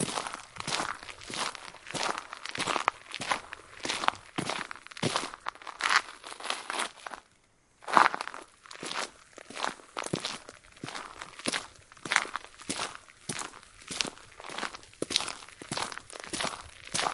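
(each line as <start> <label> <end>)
0.0 Slow, steady footsteps on a dirty, crunchy, rocky surface outdoors. 17.1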